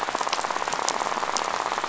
{"label": "biophony, rattle", "recorder": "SoundTrap 500"}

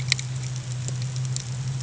{"label": "anthrophony, boat engine", "recorder": "HydroMoth"}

